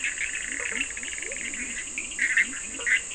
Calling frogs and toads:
Bischoff's tree frog (Boana bischoffi), Leptodactylus latrans, Cochran's lime tree frog (Sphaenorhynchus surdus), blacksmith tree frog (Boana faber)
Brazil, 3am

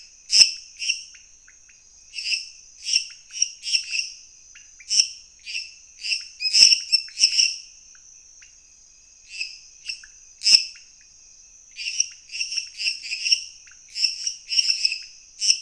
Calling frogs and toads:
lesser tree frog (Dendropsophus minutus), pointedbelly frog (Leptodactylus podicipinus)
Brazil, 10pm

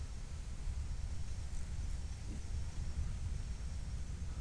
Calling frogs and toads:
none
Brazil, ~6pm

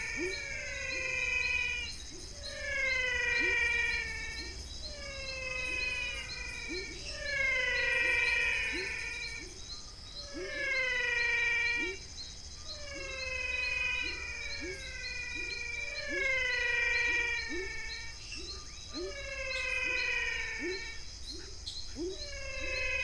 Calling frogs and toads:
dwarf tree frog (Dendropsophus nanus), pepper frog (Leptodactylus labyrinthicus), menwig frog (Physalaemus albonotatus), rufous frog (Leptodactylus fuscus)
Brazil, ~6pm

